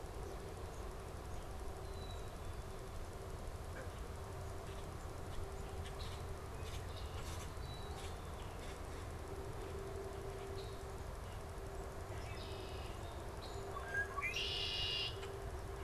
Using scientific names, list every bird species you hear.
Poecile atricapillus, Agelaius phoeniceus